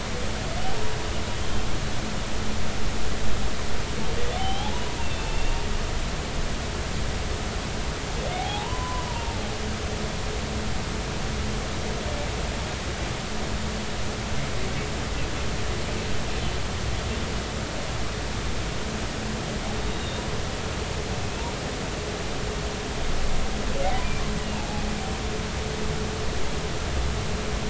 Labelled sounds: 4.3	5.7	humpback whale, 0.80 to 3.5 kHz
8.4	9.3	humpback whale, 0.80 to 1.1 kHz
19.9	20.2	humpback whale, 3.6 to 3.8 kHz
24.4	24.8	humpback whale, 0.80 to 2.9 kHz

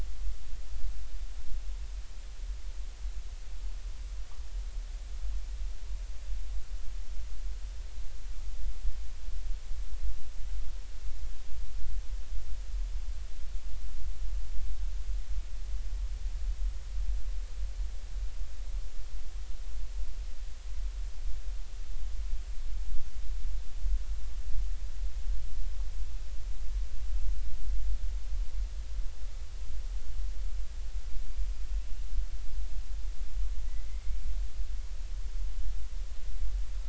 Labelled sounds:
33.9	34.3	killer whale, Bigg's (transient), 2.0 to 2.4 kHz

